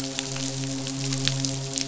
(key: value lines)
label: biophony, midshipman
recorder: SoundTrap 500